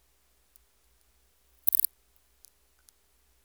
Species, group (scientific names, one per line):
Pholidoptera littoralis
Orthoptera